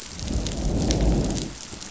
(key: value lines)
label: biophony, growl
recorder: SoundTrap 500